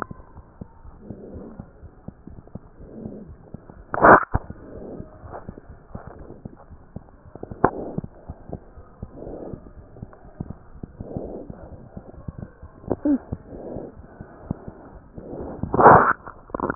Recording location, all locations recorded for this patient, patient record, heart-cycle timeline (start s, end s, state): aortic valve (AV)
aortic valve (AV)+pulmonary valve (PV)+tricuspid valve (TV)+mitral valve (MV)
#Age: Infant
#Sex: Male
#Height: 87.0 cm
#Weight: 12.5 kg
#Pregnancy status: False
#Murmur: Absent
#Murmur locations: nan
#Most audible location: nan
#Systolic murmur timing: nan
#Systolic murmur shape: nan
#Systolic murmur grading: nan
#Systolic murmur pitch: nan
#Systolic murmur quality: nan
#Diastolic murmur timing: nan
#Diastolic murmur shape: nan
#Diastolic murmur grading: nan
#Diastolic murmur pitch: nan
#Diastolic murmur quality: nan
#Outcome: Abnormal
#Campaign: 2015 screening campaign
0.00	0.18	unannotated
0.18	0.34	diastole
0.34	0.44	S1
0.44	0.58	systole
0.58	0.69	S2
0.69	0.82	diastole
0.82	0.92	S1
0.92	1.09	systole
1.09	1.16	S2
1.16	1.32	diastole
1.32	1.46	S1
1.46	1.56	systole
1.56	1.66	S2
1.66	1.81	diastole
1.81	1.89	S1
1.89	2.05	systole
2.05	2.16	S2
2.16	2.28	diastole
2.28	2.38	S1
2.38	2.54	systole
2.54	2.62	S2
2.62	2.78	diastole
2.78	2.90	S1
2.90	2.98	systole
2.98	3.12	S2
3.12	3.27	diastole
3.27	3.38	S1
3.38	3.50	systole
3.50	3.61	S2
3.61	3.77	diastole
3.77	16.75	unannotated